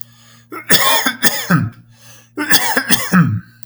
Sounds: Cough